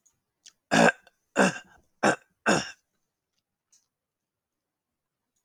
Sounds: Throat clearing